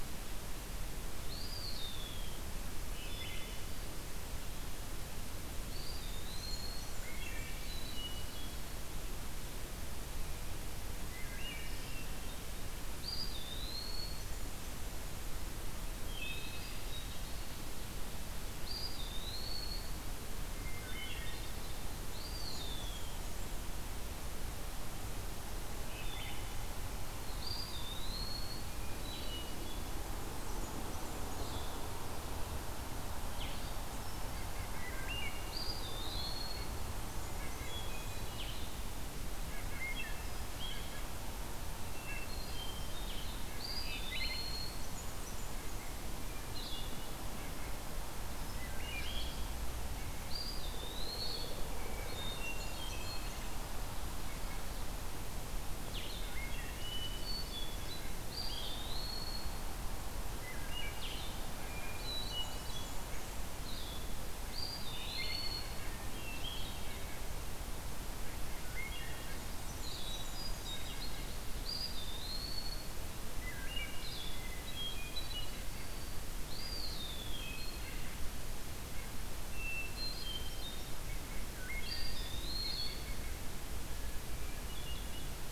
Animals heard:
Wood Thrush (Hylocichla mustelina)
White-breasted Nuthatch (Sitta carolinensis)
Blackburnian Warbler (Setophaga fusca)
Blue-headed Vireo (Vireo solitarius)
Eastern Wood-Pewee (Contopus virens)
Hermit Thrush (Catharus guttatus)

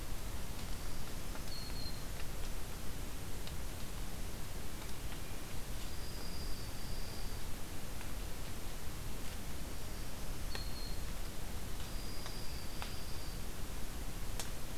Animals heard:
Black-throated Green Warbler (Setophaga virens)
Swainson's Thrush (Catharus ustulatus)
Dark-eyed Junco (Junco hyemalis)

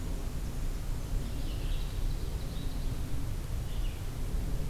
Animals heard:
Red-eyed Vireo (Vireo olivaceus)
Ovenbird (Seiurus aurocapilla)

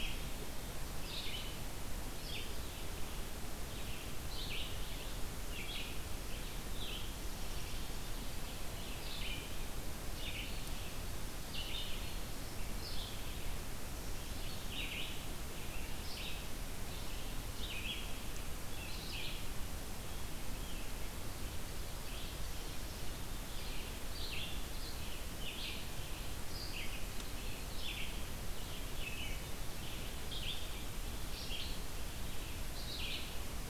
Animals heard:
Red-eyed Vireo (Vireo olivaceus)

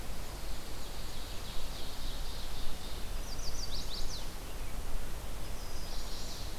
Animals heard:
Black-and-white Warbler (Mniotilta varia)
Ovenbird (Seiurus aurocapilla)
Chestnut-sided Warbler (Setophaga pensylvanica)

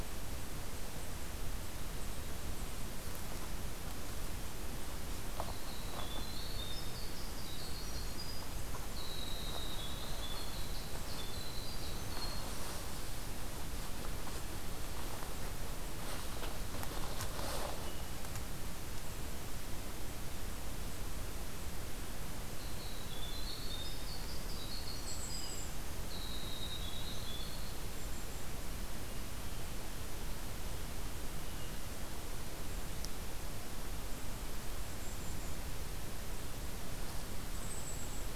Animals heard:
Winter Wren (Troglodytes hiemalis)
Golden-crowned Kinglet (Regulus satrapa)

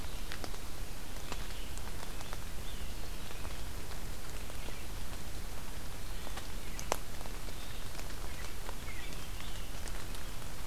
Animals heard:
Scarlet Tanager (Piranga olivacea)
Red-eyed Vireo (Vireo olivaceus)

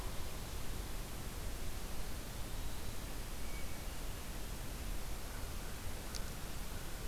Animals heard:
Eastern Wood-Pewee (Contopus virens)
Hermit Thrush (Catharus guttatus)

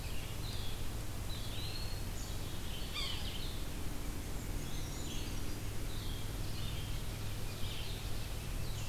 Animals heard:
Gray Catbird (Dumetella carolinensis)
Black-capped Chickadee (Poecile atricapillus)
Brown Creeper (Certhia americana)
Eastern Wood-Pewee (Contopus virens)
Ovenbird (Seiurus aurocapilla)
Red-eyed Vireo (Vireo olivaceus)

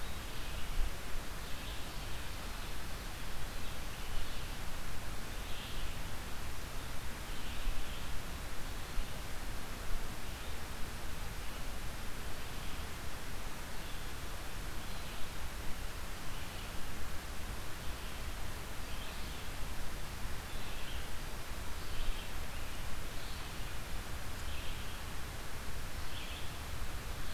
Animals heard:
Red-eyed Vireo (Vireo olivaceus)

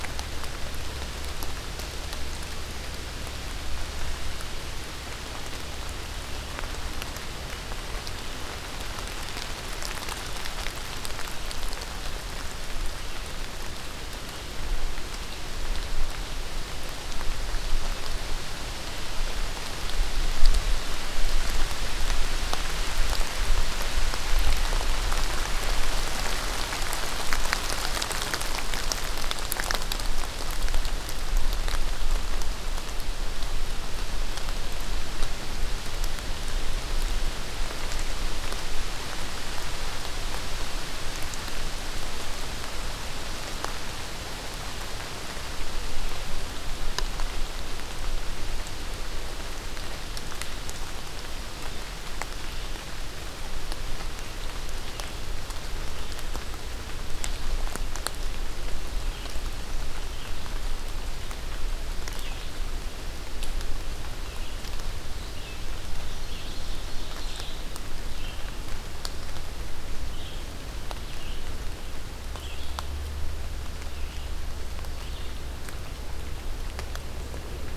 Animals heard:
Ovenbird (Seiurus aurocapilla)
Red-eyed Vireo (Vireo olivaceus)

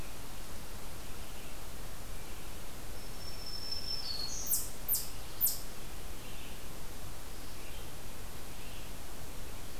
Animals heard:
Black-throated Green Warbler (Setophaga virens)
Eastern Chipmunk (Tamias striatus)
Red-eyed Vireo (Vireo olivaceus)

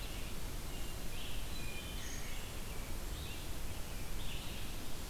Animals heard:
Wood Thrush (Hylocichla mustelina)
Red-eyed Vireo (Vireo olivaceus)
Brown Creeper (Certhia americana)

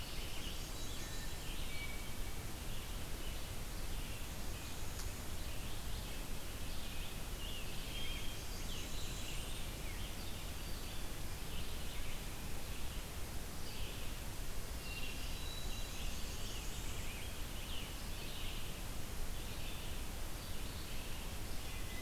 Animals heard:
Red-eyed Vireo (Vireo olivaceus)
Blackburnian Warbler (Setophaga fusca)
Hermit Thrush (Catharus guttatus)
Black-throated Green Warbler (Setophaga virens)
Scarlet Tanager (Piranga olivacea)

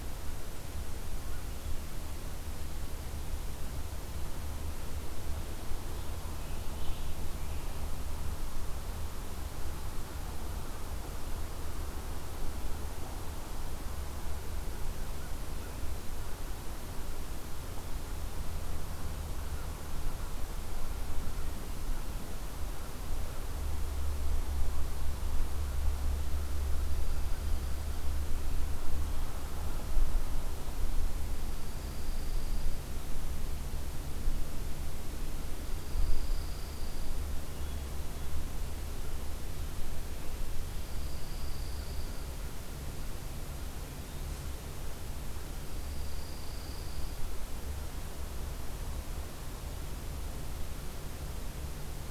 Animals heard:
Dark-eyed Junco (Junco hyemalis)
Eastern Wood-Pewee (Contopus virens)
Hermit Thrush (Catharus guttatus)

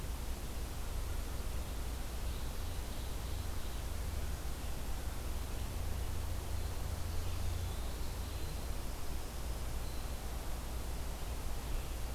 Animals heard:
Winter Wren (Troglodytes hiemalis)
Ovenbird (Seiurus aurocapilla)

